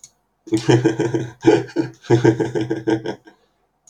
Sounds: Laughter